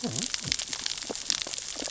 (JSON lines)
{"label": "biophony, cascading saw", "recorder": "SoundTrap 600 or HydroMoth"}